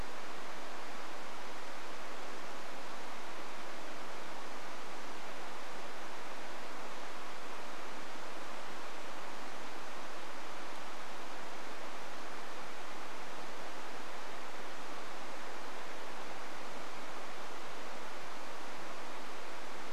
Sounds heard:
forest ambience